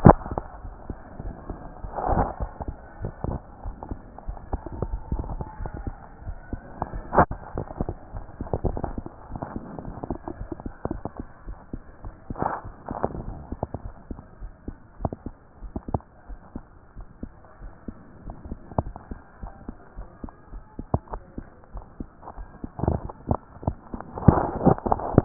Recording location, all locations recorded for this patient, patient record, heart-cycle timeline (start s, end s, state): aortic valve (AV)
aortic valve (AV)+pulmonary valve (PV)+tricuspid valve (TV)+mitral valve (MV)
#Age: Child
#Sex: Female
#Height: 124.0 cm
#Weight: 29.8 kg
#Pregnancy status: False
#Murmur: Absent
#Murmur locations: nan
#Most audible location: nan
#Systolic murmur timing: nan
#Systolic murmur shape: nan
#Systolic murmur grading: nan
#Systolic murmur pitch: nan
#Systolic murmur quality: nan
#Diastolic murmur timing: nan
#Diastolic murmur shape: nan
#Diastolic murmur grading: nan
#Diastolic murmur pitch: nan
#Diastolic murmur quality: nan
#Outcome: Normal
#Campaign: 2014 screening campaign
0.00	13.84	unannotated
13.84	13.94	S1
13.94	14.10	systole
14.10	14.20	S2
14.20	14.42	diastole
14.42	14.52	S1
14.52	14.66	systole
14.66	14.76	S2
14.76	15.00	diastole
15.00	15.12	S1
15.12	15.26	systole
15.26	15.34	S2
15.34	15.62	diastole
15.62	15.72	S1
15.72	15.94	systole
15.94	16.02	S2
16.02	16.30	diastole
16.30	16.40	S1
16.40	16.56	systole
16.56	16.64	S2
16.64	16.98	diastole
16.98	17.06	S1
17.06	17.22	systole
17.22	17.32	S2
17.32	17.62	diastole
17.62	17.72	S1
17.72	17.88	systole
17.88	17.96	S2
17.96	18.26	diastole
18.26	18.36	S1
18.36	18.48	systole
18.48	18.56	S2
18.56	18.83	diastole
18.83	18.92	S1
18.92	19.10	systole
19.10	19.18	S2
19.18	19.42	diastole
19.42	19.52	S1
19.52	19.68	systole
19.68	19.76	S2
19.76	19.98	diastole
19.98	20.08	S1
20.08	20.23	systole
20.23	20.32	S2
20.32	20.54	diastole
20.54	25.25	unannotated